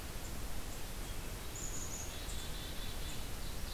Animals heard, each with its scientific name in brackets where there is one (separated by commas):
Black-capped Chickadee (Poecile atricapillus)